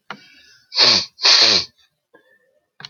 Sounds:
Sniff